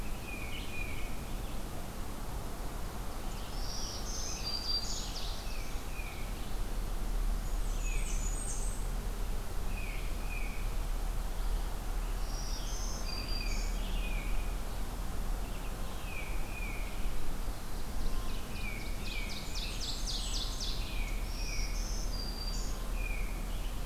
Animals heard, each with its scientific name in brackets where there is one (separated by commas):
Tufted Titmouse (Baeolophus bicolor), Scarlet Tanager (Piranga olivacea), Black-throated Green Warbler (Setophaga virens), Ovenbird (Seiurus aurocapilla), Blackburnian Warbler (Setophaga fusca)